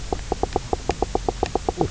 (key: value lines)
label: biophony, knock croak
recorder: SoundTrap 300